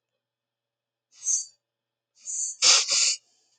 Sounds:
Sniff